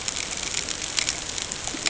{"label": "ambient", "recorder": "HydroMoth"}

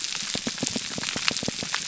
{"label": "biophony, pulse", "recorder": "SoundTrap 300"}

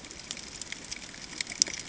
{"label": "ambient", "recorder": "HydroMoth"}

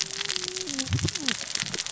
{"label": "biophony, cascading saw", "recorder": "SoundTrap 600 or HydroMoth"}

